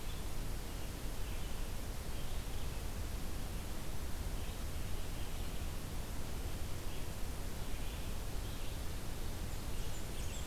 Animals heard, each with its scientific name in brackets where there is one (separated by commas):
Red-eyed Vireo (Vireo olivaceus), Blackburnian Warbler (Setophaga fusca)